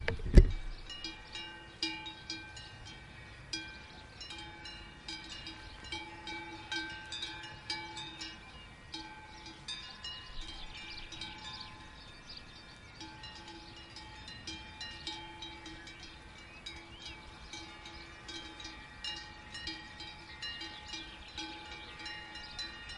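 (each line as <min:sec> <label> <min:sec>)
0:00.0 Birds chirp quietly at intervals in the distance. 0:23.0
0:00.0 Metallic cowbells chiming softly in the distance. 0:23.0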